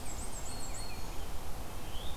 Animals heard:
Red-eyed Vireo (Vireo olivaceus), Black-and-white Warbler (Mniotilta varia), Black-throated Green Warbler (Setophaga virens)

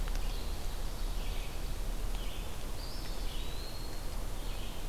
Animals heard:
Eastern Wood-Pewee (Contopus virens), Red-eyed Vireo (Vireo olivaceus), Ovenbird (Seiurus aurocapilla)

